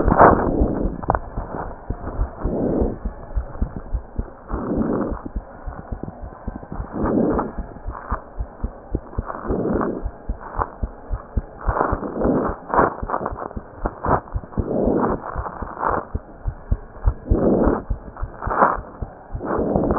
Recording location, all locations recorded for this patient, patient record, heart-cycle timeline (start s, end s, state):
pulmonary valve (PV)
aortic valve (AV)+pulmonary valve (PV)+tricuspid valve (TV)+mitral valve (MV)
#Age: Child
#Sex: Male
#Height: 106.0 cm
#Weight: 20.3 kg
#Pregnancy status: False
#Murmur: Absent
#Murmur locations: nan
#Most audible location: nan
#Systolic murmur timing: nan
#Systolic murmur shape: nan
#Systolic murmur grading: nan
#Systolic murmur pitch: nan
#Systolic murmur quality: nan
#Diastolic murmur timing: nan
#Diastolic murmur shape: nan
#Diastolic murmur grading: nan
#Diastolic murmur pitch: nan
#Diastolic murmur quality: nan
#Outcome: Normal
#Campaign: 2015 screening campaign
0.00	3.12	unannotated
3.12	3.30	diastole
3.30	3.47	S1
3.47	3.57	systole
3.57	3.70	S2
3.70	3.88	diastole
3.88	4.02	S1
4.02	4.14	systole
4.14	4.26	S2
4.26	4.49	diastole
4.49	4.59	S1
4.59	4.71	systole
4.71	4.84	S2
4.84	5.08	diastole
5.08	5.62	unannotated
5.62	5.74	S1
5.74	5.88	systole
5.88	5.99	S2
5.99	6.19	diastole
6.19	6.32	S1
6.32	6.44	systole
6.44	6.54	S2
6.54	6.74	diastole
6.74	7.81	unannotated
7.81	7.96	S1
7.96	8.07	systole
8.07	8.20	S2
8.20	8.32	diastole
8.32	8.47	S1
8.47	8.59	systole
8.59	8.71	S2
8.71	8.90	diastole
8.90	9.00	S1
9.00	9.14	systole
9.14	9.25	S2
9.25	9.50	diastole
9.50	19.98	unannotated